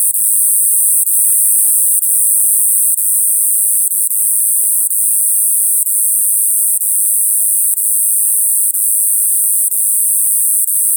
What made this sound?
Neoconocephalus triops, an orthopteran